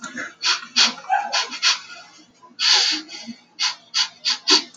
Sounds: Sniff